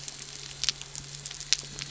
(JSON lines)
{"label": "anthrophony, boat engine", "recorder": "SoundTrap 300"}